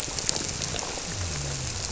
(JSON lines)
{"label": "biophony", "recorder": "SoundTrap 300"}